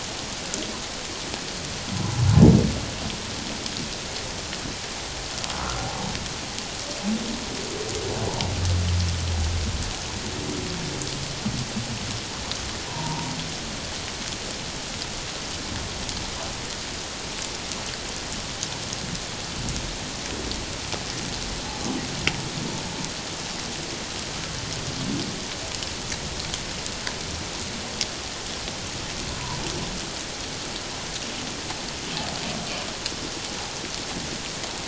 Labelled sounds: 5.6	5.9	humpback whale, 1.2 to 1.4 kHz
12.9	13.3	humpback whale, 0.81 to 1.1 kHz

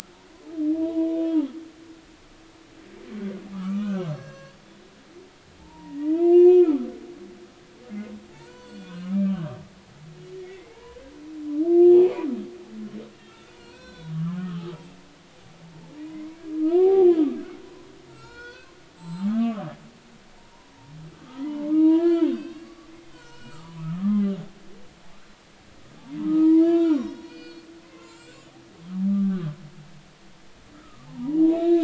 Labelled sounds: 0.8	1.5	humpback whale, 0.90 to 3.5 kHz
3.5	4.6	humpback whale, 1.0 to 7.3 kHz
5.6	6.8	humpback whale, 0.83 to 5.8 kHz
8.3	9.6	humpback whale, 0.80 to 8.0 kHz
10.3	11.0	humpback whale, 0.80 to 2.2 kHz
11.9	12.3	humpback whale, 0.80 to 2.6 kHz
13.1	14.8	humpback whale, 0.90 to 5.8 kHz
16.0	17.1	humpback whale, 0.80 to 2.3 kHz
18.1	19.7	humpback whale, 0.83 to 7.7 kHz
21.2	24.2	humpback whale, 0.83 to 7.9 kHz
26.2	27.7	humpback whale, 0.83 to 5.8 kHz
28.0	29.5	humpback whale, 1.1 to 7.9 kHz
30.7	31.8	humpback whale, 0.80 to 3.9 kHz

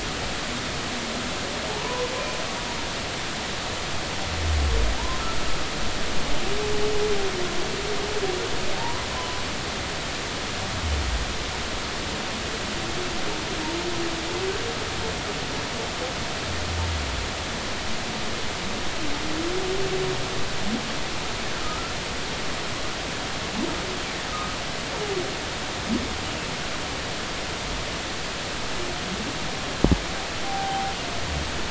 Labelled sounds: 1.7	2.1	humpback whale, 0.80 to 1.1 kHz
5.0	5.2	humpback whale, 0.86 to 1.1 kHz
8.8	9.4	humpback whale, 0.83 to 1.1 kHz
21.6	22.0	humpback whale, 1.2 to 1.4 kHz
24.3	24.6	humpback whale, 1.0 to 1.3 kHz
30.4	30.9	humpback whale, 0.80 to 0.86 kHz

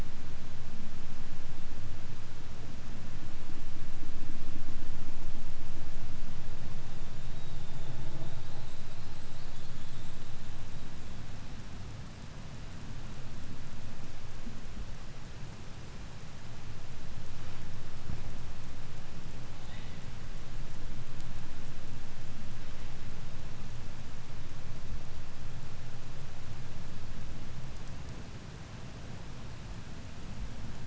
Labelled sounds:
6.8	10.7	killer whale, 3.0 to 8.0 kHz

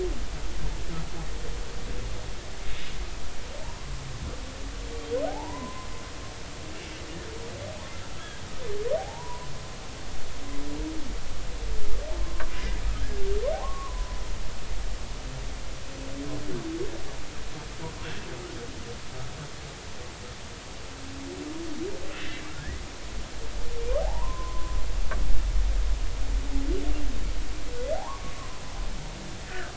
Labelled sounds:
3.6	3.9	humpback whale, 0.83 to 1.1 kHz
5.3	5.9	humpback whale, 0.80 to 1.1 kHz
9.0	9.5	humpback whale, 0.80 to 1.1 kHz
12.2	12.5	humpback whale, 0.99 to 1.2 kHz
13.5	14.2	humpback whale, 0.80 to 1.2 kHz
18.0	18.3	humpback whale, 2.6 to 2.8 kHz
24.0	24.7	humpback whale, 0.80 to 1.1 kHz
27.9	28.3	humpback whale, 0.80 to 1.2 kHz
29.5	29.7	humpback whale, 1.2 to 1.9 kHz

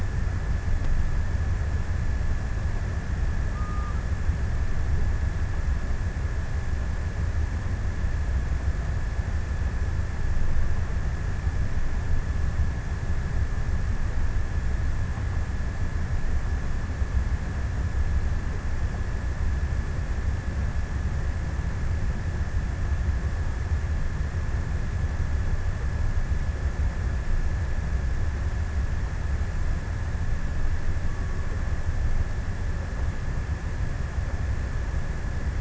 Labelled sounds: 30.6	32.6	killer whale, offshore, 0.65 to 1.3 kHz

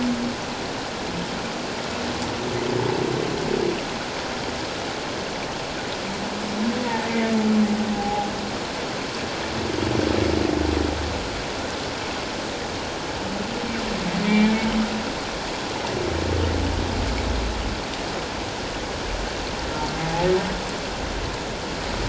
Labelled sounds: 6.8	7.1	humpback whale, 0.84 to 2.0 kHz
7.9	8.3	humpback whale, 0.78 to 0.91 kHz
14.2	14.5	humpback whale, 2.0 to 2.4 kHz
20.0	20.3	humpback whale, 0.78 to 0.91 kHz

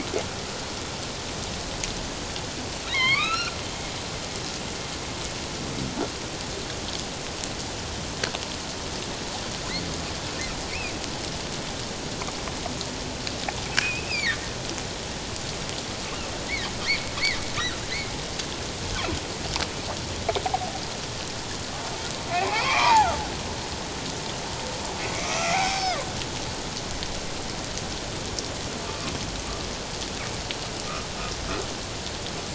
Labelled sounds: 2.9	3.6	humpback whale, 0.94 to 4.7 kHz
13.8	14.5	humpback whale, 1.6 to 2.8 kHz
22.4	23.2	humpback whale, 0.78 to 2.8 kHz
25.1	26.1	humpback whale, 0.78 to 5.5 kHz
28.9	29.1	humpback whale, 1.0 to 1.2 kHz

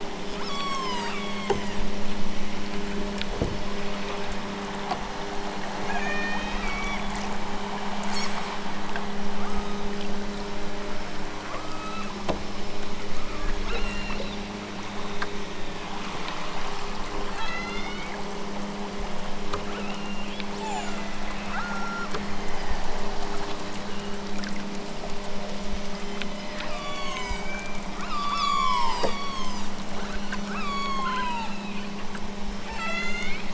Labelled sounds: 0.4	1.9	killer whale, southern Alaska resident, 0.51 to 8.0 kHz
5.9	7.1	killer whale, southern Alaska resident, 0.83 to 7.1 kHz
9.3	9.9	killer whale, southern Alaska resident, 0.83 to 8.0 kHz
11.6	12.1	killer whale, southern Alaska resident, 0.83 to 8.0 kHz
13.6	14.3	killer whale, southern Alaska resident, 1.1 to 5.7 kHz
17.3	18.1	killer whale, southern Alaska resident, 0.88 to 5.6 kHz
19.8	21.1	killer whale, southern Alaska resident, 0.46 to 7.0 kHz
21.5	22.9	killer whale, southern Alaska resident, 0.97 to 8.0 kHz
23.9	24.5	killer whale, southern Alaska resident, 2.5 to 4.3 kHz
25.4	27.8	killer whale, southern Alaska resident, 0.69 to 8.0 kHz
28.0	29.8	killer whale, southern Alaska resident, 0.46 to 8.0 kHz
30.5	31.8	killer whale, southern Alaska resident, 0.78 to 8.0 kHz
32.6	33.4	killer whale, southern Alaska resident, 0.69 to 8.0 kHz

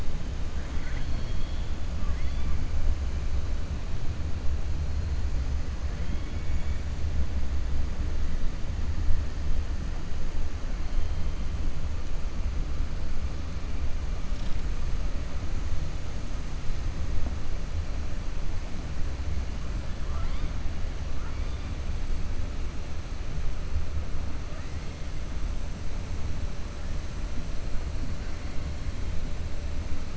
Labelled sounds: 0.5	1.7	killer whale, 0.97 to 4.4 kHz
5.9	6.8	killer whale, 1.8 to 3.4 kHz
20.0	20.5	killer whale, 0.67 to 4.6 kHz

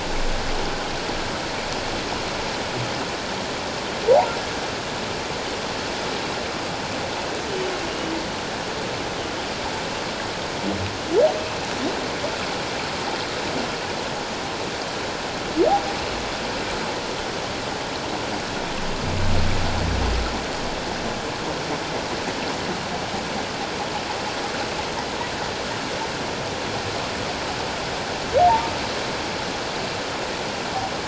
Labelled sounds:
7.9	8.1	humpback whale, 2.8 to 3.0 kHz

